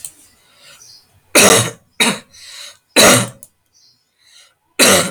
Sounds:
Cough